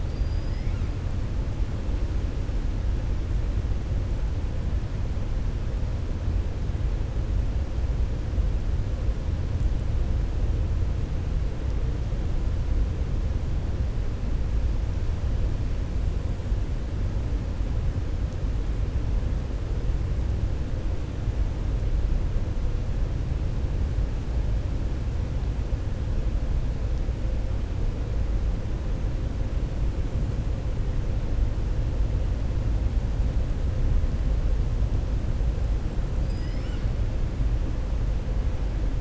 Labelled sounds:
0.0	0.7	killer whale, 4.2 to 5.3 kHz

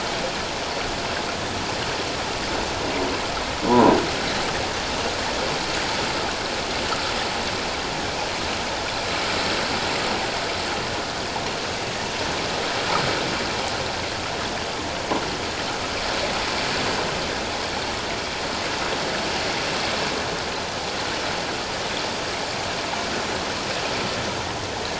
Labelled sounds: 3.7	4.0	croaking sound likely from a nearby submerged object, 0.78 to 1.1 kHz

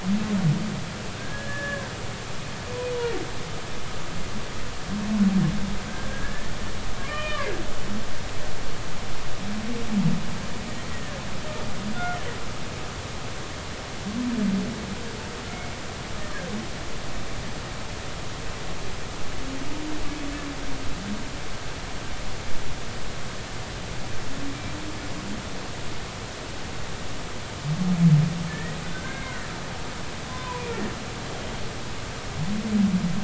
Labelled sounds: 1.1	1.9	humpback whale, 1.4 to 1.8 kHz
5.9	7.5	humpback whale, 0.93 to 3.2 kHz
10.9	11.1	humpback whale, 1.7 to 2.0 kHz
15.5	16.5	humpback whale, 1.5 to 2.3 kHz
28.5	29.4	humpback whale, 1.4 to 2.2 kHz
30.3	30.6	humpback whale, 0.93 to 1.1 kHz

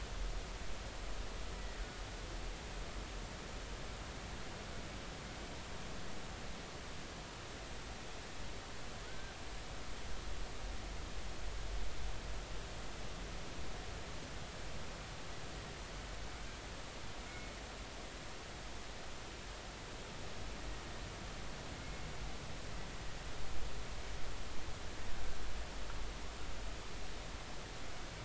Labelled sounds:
1.6	1.8	killer whale, Bigg's (transient), 1.8 to 2.0 kHz
9.1	9.3	killer whale, Bigg's (transient), 1.4 to 1.6 kHz
17.3	17.6	killer whale, Bigg's (transient), 2.1 to 2.3 kHz

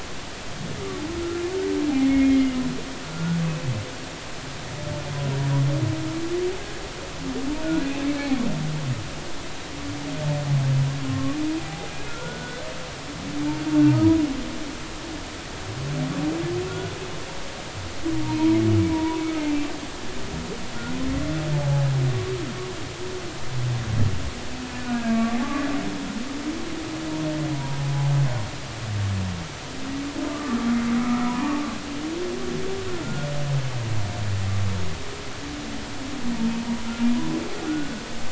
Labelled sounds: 1.2	2.6	humpback whale, 1.3 to 2.2 kHz
3.0	3.4	humpback whale, 1.3 to 1.5 kHz
8.0	8.4	humpback whale, 2.1 to 2.4 kHz
11.1	12.7	humpback whale, 0.80 to 2.6 kHz
18.2	19.7	humpback whale, 0.86 to 2.5 kHz
24.9	25.4	humpback whale, 1.1 to 2.4 kHz
27.5	27.8	humpback whale, 0.90 to 0.99 kHz
30.3	31.6	humpback whale, 0.83 to 1.4 kHz
33.0	33.3	humpback whale, 1.3 to 1.5 kHz
37.7	38.0	humpback whale, 1.3 to 1.6 kHz

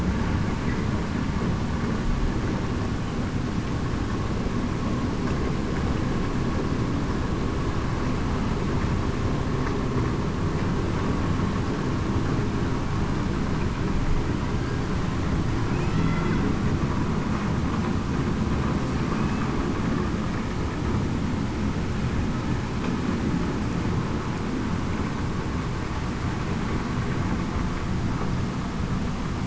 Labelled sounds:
15.9	16.2	killer whale, Bigg's (transient), 2.0 to 2.1 kHz

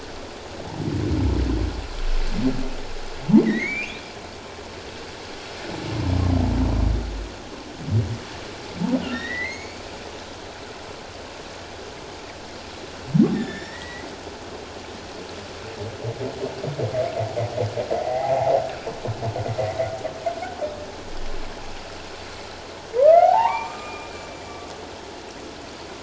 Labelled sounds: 3.4	4.0	humpback whale, 1.8 to 2.9 kHz
9.1	9.8	humpback whale, 1.7 to 6.9 kHz
13.3	14.1	humpback whale, 1.6 to 3.8 kHz
18.0	18.6	humpback whale, 0.78 to 2.1 kHz
23.0	24.4	humpback whale, 0.78 to 7.3 kHz

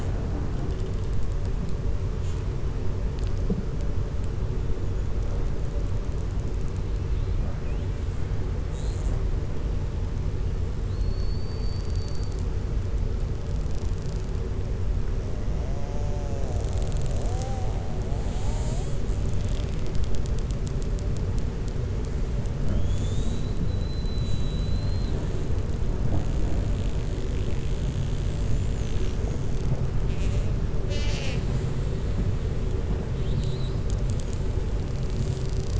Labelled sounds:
23.7	25.2	killer whale, 3.0 to 4.2 kHz
33.1	33.8	killer whale, 3.0 to 4.5 kHz

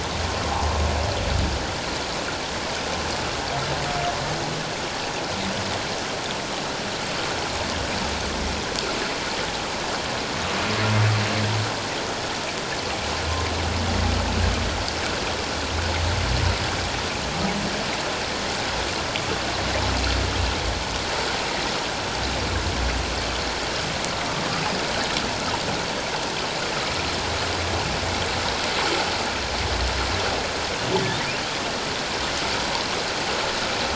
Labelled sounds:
0.5	0.8	humpback whale, 0.78 to 1.2 kHz

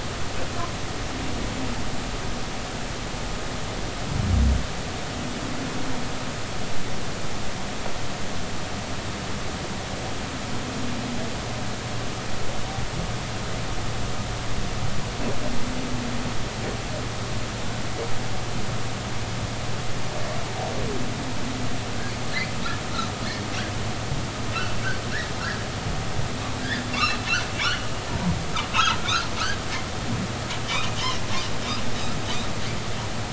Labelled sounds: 24.5	24.8	humpback whale, 2.5 to 2.8 kHz
26.6	27.2	humpback whale, 1.5 to 2.9 kHz
27.6	28.4	humpback whale, 0.86 to 3.1 kHz
28.7	29.0	humpback whale, 2.5 to 2.8 kHz

